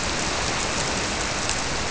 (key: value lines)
label: biophony
recorder: SoundTrap 300